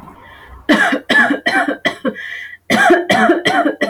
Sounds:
Cough